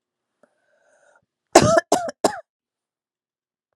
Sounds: Cough